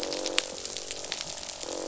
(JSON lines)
{"label": "biophony, croak", "recorder": "SoundTrap 500"}